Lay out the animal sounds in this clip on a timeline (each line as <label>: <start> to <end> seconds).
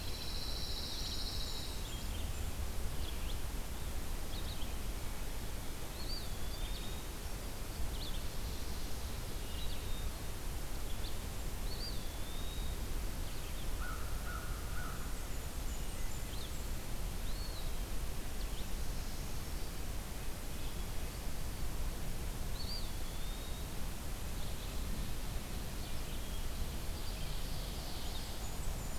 Pine Warbler (Setophaga pinus): 0.0 to 1.9 seconds
Red-eyed Vireo (Vireo olivaceus): 0.0 to 29.0 seconds
Blackburnian Warbler (Setophaga fusca): 0.6 to 2.7 seconds
Eastern Wood-Pewee (Contopus virens): 5.7 to 7.2 seconds
Hermit Thrush (Catharus guttatus): 9.4 to 10.4 seconds
Eastern Wood-Pewee (Contopus virens): 11.5 to 12.9 seconds
American Crow (Corvus brachyrhynchos): 13.7 to 15.5 seconds
Blackburnian Warbler (Setophaga fusca): 14.7 to 17.0 seconds
Eastern Wood-Pewee (Contopus virens): 17.0 to 17.9 seconds
Eastern Wood-Pewee (Contopus virens): 22.4 to 24.1 seconds
Hermit Thrush (Catharus guttatus): 25.7 to 26.5 seconds
Ovenbird (Seiurus aurocapilla): 26.8 to 28.7 seconds
Blackburnian Warbler (Setophaga fusca): 27.9 to 29.0 seconds